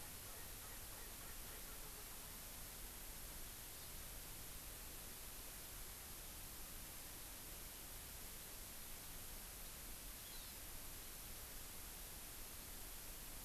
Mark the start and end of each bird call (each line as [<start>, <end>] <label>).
[0.00, 2.40] Erckel's Francolin (Pternistis erckelii)
[10.20, 10.60] Hawaii Amakihi (Chlorodrepanis virens)